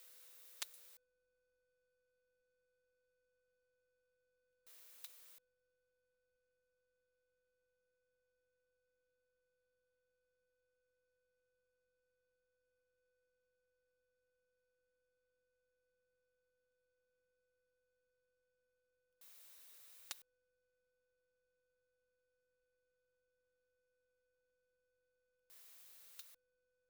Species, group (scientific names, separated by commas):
Leptophyes punctatissima, Orthoptera